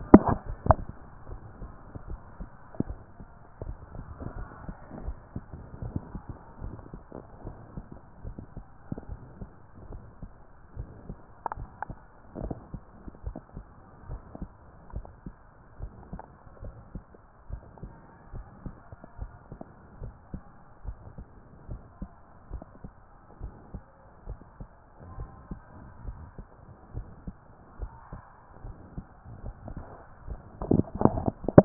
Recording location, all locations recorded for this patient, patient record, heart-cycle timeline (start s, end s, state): tricuspid valve (TV)
pulmonary valve (PV)+tricuspid valve (TV)
#Age: nan
#Sex: Female
#Height: nan
#Weight: nan
#Pregnancy status: True
#Murmur: Absent
#Murmur locations: nan
#Most audible location: nan
#Systolic murmur timing: nan
#Systolic murmur shape: nan
#Systolic murmur grading: nan
#Systolic murmur pitch: nan
#Systolic murmur quality: nan
#Diastolic murmur timing: nan
#Diastolic murmur shape: nan
#Diastolic murmur grading: nan
#Diastolic murmur pitch: nan
#Diastolic murmur quality: nan
#Outcome: Normal
#Campaign: 2014 screening campaign
0.00	6.62	unannotated
6.62	6.76	S1
6.76	6.92	systole
6.92	7.02	S2
7.02	7.44	diastole
7.44	7.56	S1
7.56	7.76	systole
7.76	7.84	S2
7.84	8.24	diastole
8.24	8.36	S1
8.36	8.56	systole
8.56	8.64	S2
8.64	9.08	diastole
9.08	9.20	S1
9.20	9.40	systole
9.40	9.48	S2
9.48	9.90	diastole
9.90	10.02	S1
10.02	10.22	systole
10.22	10.30	S2
10.30	10.76	diastole
10.76	10.88	S1
10.88	11.08	systole
11.08	11.18	S2
11.18	11.58	diastole
11.58	11.70	S1
11.70	11.88	systole
11.88	11.98	S2
11.98	12.40	diastole
12.40	12.54	S1
12.54	12.72	systole
12.72	12.82	S2
12.82	13.24	diastole
13.24	13.36	S1
13.36	13.56	systole
13.56	13.64	S2
13.64	14.08	diastole
14.08	14.22	S1
14.22	14.40	systole
14.40	14.50	S2
14.50	14.94	diastole
14.94	15.06	S1
15.06	15.26	systole
15.26	15.34	S2
15.34	15.80	diastole
15.80	15.92	S1
15.92	16.12	systole
16.12	16.20	S2
16.20	16.64	diastole
16.64	16.74	S1
16.74	16.94	systole
16.94	17.04	S2
17.04	17.50	diastole
17.50	17.62	S1
17.62	17.82	systole
17.82	17.92	S2
17.92	18.34	diastole
18.34	18.46	S1
18.46	18.64	systole
18.64	18.74	S2
18.74	19.20	diastole
19.20	19.30	S1
19.30	19.50	systole
19.50	19.58	S2
19.58	20.02	diastole
20.02	20.14	S1
20.14	20.32	systole
20.32	20.42	S2
20.42	20.86	diastole
20.86	20.96	S1
20.96	21.18	systole
21.18	21.26	S2
21.26	21.70	diastole
21.70	21.82	S1
21.82	22.00	systole
22.00	22.10	S2
22.10	22.52	diastole
22.52	22.62	S1
22.62	22.84	systole
22.84	22.92	S2
22.92	23.42	diastole
23.42	23.54	S1
23.54	23.72	systole
23.72	23.82	S2
23.82	24.28	diastole
24.28	24.38	S1
24.38	24.60	systole
24.60	24.68	S2
24.68	25.16	diastole
25.16	25.30	S1
25.30	25.50	systole
25.50	25.60	S2
25.60	26.06	diastole
26.06	26.18	S1
26.18	26.38	systole
26.38	26.46	S2
26.46	26.94	diastole
26.94	27.06	S1
27.06	27.26	systole
27.26	27.36	S2
27.36	27.80	diastole
27.80	27.92	S1
27.92	28.12	systole
28.12	28.22	S2
28.22	28.64	diastole
28.64	28.76	S1
28.76	28.96	systole
28.96	29.04	S2
29.04	29.44	diastole
29.44	29.56	S1
29.56	29.74	systole
29.74	29.84	S2
29.84	30.28	diastole
30.28	31.65	unannotated